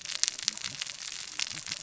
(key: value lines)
label: biophony, cascading saw
recorder: SoundTrap 600 or HydroMoth